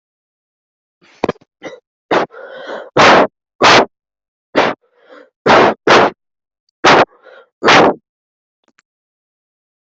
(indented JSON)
{
  "expert_labels": [
    {
      "quality": "no cough present",
      "dyspnea": false,
      "wheezing": false,
      "stridor": false,
      "choking": false,
      "congestion": false,
      "nothing": false
    }
  ],
  "age": 18,
  "gender": "male",
  "respiratory_condition": true,
  "fever_muscle_pain": false,
  "status": "COVID-19"
}